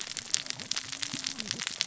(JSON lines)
{"label": "biophony, cascading saw", "recorder": "SoundTrap 600 or HydroMoth"}